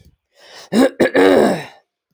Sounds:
Throat clearing